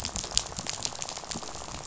{"label": "biophony, rattle", "recorder": "SoundTrap 500"}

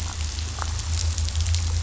{"label": "anthrophony, boat engine", "recorder": "SoundTrap 500"}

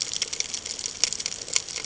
{"label": "ambient", "recorder": "HydroMoth"}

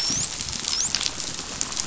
{"label": "biophony, dolphin", "recorder": "SoundTrap 500"}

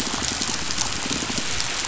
{"label": "biophony", "recorder": "SoundTrap 500"}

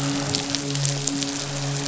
{"label": "biophony, midshipman", "recorder": "SoundTrap 500"}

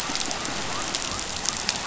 {"label": "biophony", "recorder": "SoundTrap 500"}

